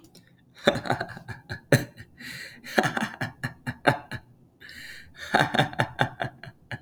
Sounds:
Laughter